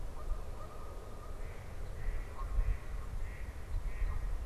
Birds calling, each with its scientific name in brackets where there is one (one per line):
Mallard (Anas platyrhynchos)
Canada Goose (Branta canadensis)